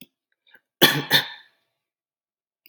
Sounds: Cough